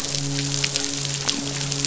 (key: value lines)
label: biophony, midshipman
recorder: SoundTrap 500